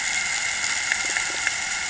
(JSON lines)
{"label": "anthrophony, boat engine", "recorder": "HydroMoth"}